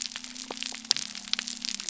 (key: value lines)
label: biophony
recorder: SoundTrap 300